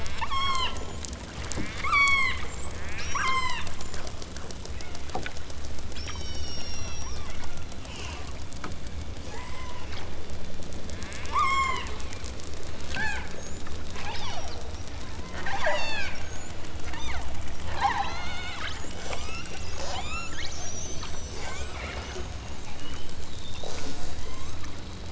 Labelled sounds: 0.2	0.8	killer whale, southern Alaska resident, 0.69 to 8.0 kHz
1.8	2.4	killer whale, southern Alaska resident, 0.69 to 8.0 kHz
2.8	3.7	killer whale, southern Alaska resident, 0.60 to 8.0 kHz
4.6	5.2	killer whale, southern Alaska resident, 1.2 to 4.3 kHz
5.9	7.3	killer whale, southern Alaska resident, 0.92 to 8.0 kHz
9.3	10.0	killer whale, southern Alaska resident, 0.60 to 8.0 kHz
11.3	11.9	killer whale, southern Alaska resident, 0.64 to 8.0 kHz
12.9	13.6	killer whale, southern Alaska resident, 0.41 to 8.0 kHz
13.9	14.7	killer whale, southern Alaska resident, 0.46 to 6.0 kHz
15.3	16.2	killer whale, southern Alaska resident, 0.37 to 8.0 kHz
16.8	17.4	killer whale, southern Alaska resident, 0.37 to 6.4 kHz
17.7	18.6	killer whale, southern Alaska resident, 0.39 to 7.0 kHz
18.9	20.4	killer whale, southern Alaska resident, 0.23 to 8.0 kHz
21.2	22.4	killer whale, southern Alaska resident, 0.32 to 8.0 kHz
23.6	24.6	killer whale, southern Alaska resident, 0.32 to 8.0 kHz

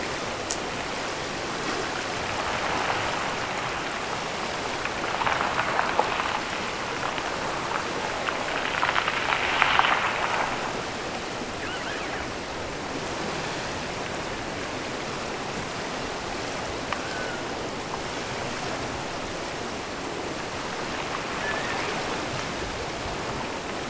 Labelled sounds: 11.5	12.3	killer whale, offshore, 0.98 to 3.6 kHz
16.8	17.5	killer whale, offshore, 0.89 to 3.4 kHz
21.3	22.0	killer whale, offshore, 1.5 to 2.7 kHz

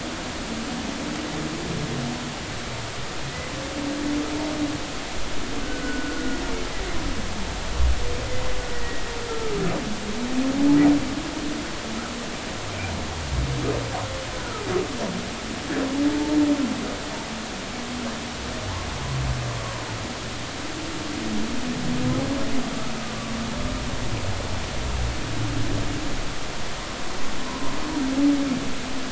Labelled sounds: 5.6	6.4	humpback whale, 1.4 to 1.6 kHz
8.7	9.5	humpback whale, 1.2 to 2.0 kHz
14.3	14.6	humpback whale, 1.2 to 1.5 kHz
16.1	16.4	humpback whale, 0.83 to 0.93 kHz

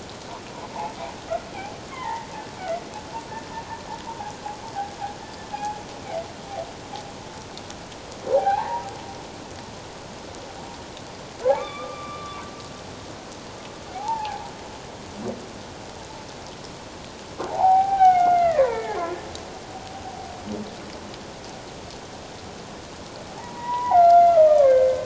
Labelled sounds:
1.9	2.3	humpback whale, 0.81 to 2.2 kHz
5.5	5.8	humpback whale, 0.78 to 0.91 kHz
8.3	8.9	humpback whale, 0.78 to 1.7 kHz
11.5	12.4	humpback whale, 0.94 to 3.7 kHz
13.9	14.5	humpback whale, 0.78 to 1.0 kHz
17.4	19.1	humpback whale, 0.78 to 3.1 kHz
23.4	25.0	humpback whale, 0.78 to 2.4 kHz

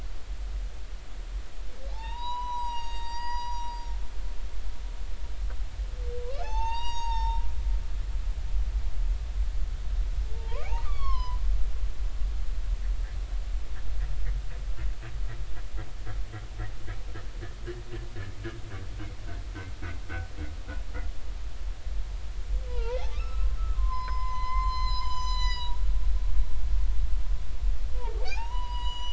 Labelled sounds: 1.9	3.7	humpback whale, 0.80 to 7.9 kHz
4.1	4.5	humpback whale, 6.6 to 6.8 kHz
6.2	7.4	humpback whale, 0.80 to 7.6 kHz
10.3	11.4	humpback whale, 0.86 to 5.8 kHz
22.7	25.7	humpback whale, 0.86 to 8.0 kHz
28.0	29.1	humpback whale, 0.80 to 6.9 kHz

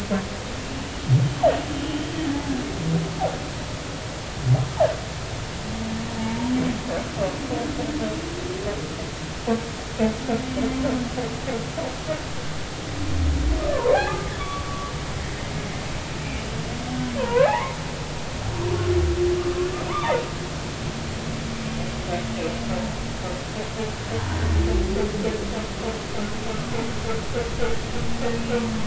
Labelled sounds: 6.2	6.5	humpback whale, 0.83 to 1.0 kHz
13.6	14.9	humpback whale, 0.80 to 1.3 kHz
17.2	17.8	humpback whale, 0.80 to 2.7 kHz
19.9	20.2	humpback whale, 3.5 to 3.7 kHz
28.1	28.4	humpback whale, 1.7 to 1.9 kHz

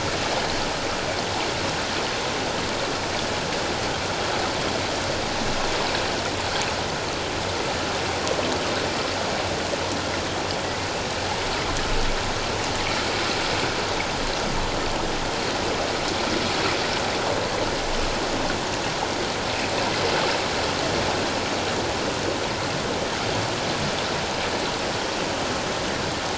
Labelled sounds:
10.6	10.9	humpback whale, 1.8 to 2.2 kHz

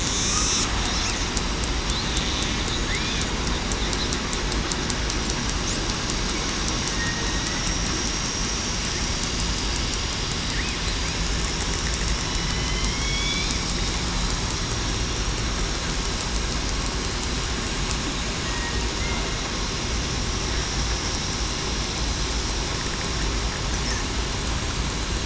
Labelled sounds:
6.9	7.2	killer whale, southern resident, 1.8 to 1.9 kHz
12.5	13.4	killer whale, southern resident, 3.0 to 3.5 kHz

